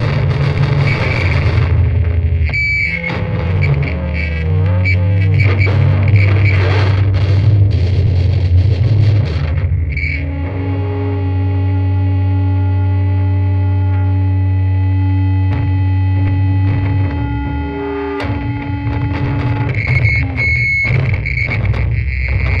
Is this just noise?
yes